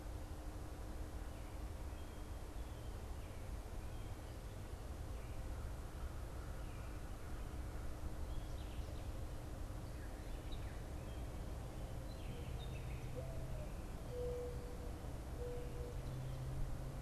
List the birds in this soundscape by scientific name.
unidentified bird, Zenaida macroura